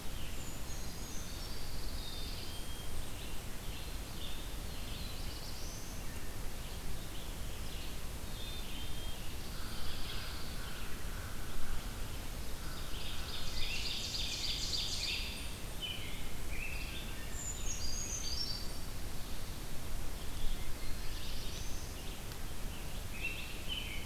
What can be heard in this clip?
Brown Creeper, Red-eyed Vireo, Pine Warbler, Black-capped Chickadee, Black-throated Blue Warbler, American Crow, Ovenbird, American Robin, Wood Thrush